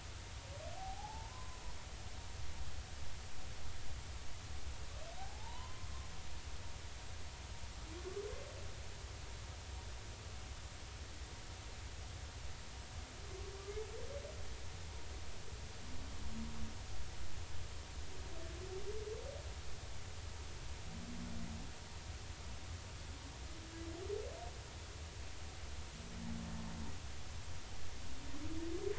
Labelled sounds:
0.7	1.6	humpback whale, 0.80 to 1.1 kHz
5.2	5.9	humpback whale, 0.80 to 3.1 kHz

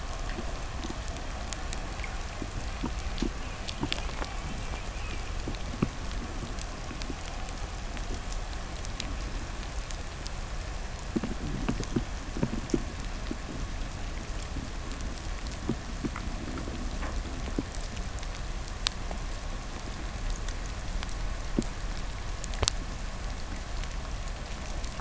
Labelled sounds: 21.3	21.8	noise likely from the mooring, 0 to 0.80 kHz

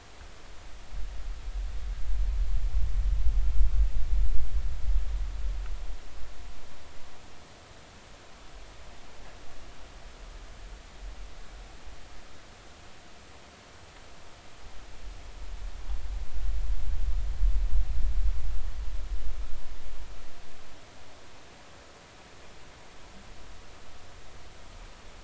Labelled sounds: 4.6	4.9	humpback whale, 7.4 to 7.6 kHz

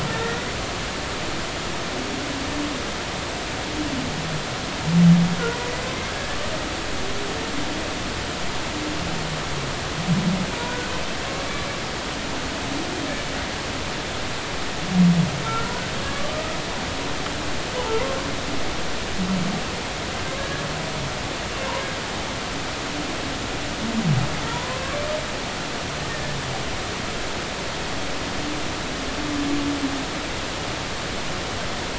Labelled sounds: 0.1	0.5	humpback whale, 1.3 to 1.9 kHz
6.1	6.4	humpback whale, 1.5 to 1.8 kHz
10.6	10.9	humpback whale, 0.90 to 1.5 kHz
15.5	16.4	humpback whale, 1.1 to 1.4 kHz
24.5	25.0	humpback whale, 0.90 to 1.2 kHz
26.1	26.4	humpback whale, 1.7 to 1.9 kHz

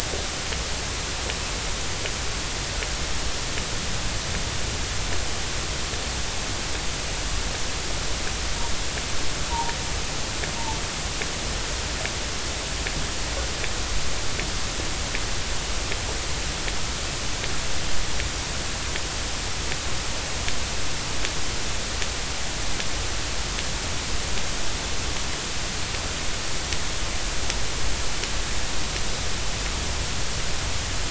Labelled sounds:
9.5	9.7	humpback whale, 0.80 to 0.99 kHz

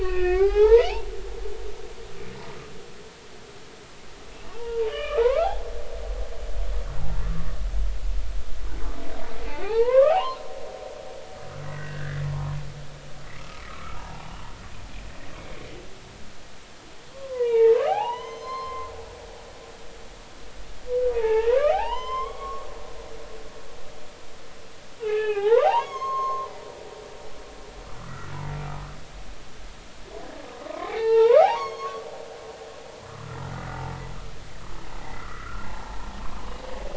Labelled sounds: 0.0	1.1	humpback whale, 0.80 to 3.5 kHz
4.5	5.5	humpback whale, 0.83 to 3.2 kHz
9.4	10.4	humpback whale, 0.80 to 3.0 kHz
11.7	12.6	humpback whale, 0.80 to 2.0 kHz
13.7	14.3	humpback whale, 0.80 to 1.4 kHz
15.4	15.8	humpback whale, 2.0 to 2.3 kHz
17.1	18.9	humpback whale, 0.80 to 6.3 kHz
21.1	22.7	humpback whale, 0.80 to 5.3 kHz
25.0	26.5	humpback whale, 0.80 to 6.8 kHz
27.9	28.4	humpback whale, 1.1 to 1.5 kHz
30.9	32.1	humpback whale, 0.80 to 6.7 kHz
33.5	33.8	humpback whale, 1.9 to 2.1 kHz
35.0	36.1	humpback whale, 0.80 to 2.1 kHz

